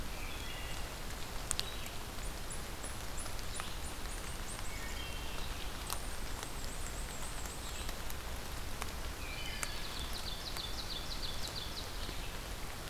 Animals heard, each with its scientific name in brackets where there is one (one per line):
Wood Thrush (Hylocichla mustelina)
unknown mammal
Black-and-white Warbler (Mniotilta varia)
Eastern Wood-Pewee (Contopus virens)
Red-eyed Vireo (Vireo olivaceus)
Ovenbird (Seiurus aurocapilla)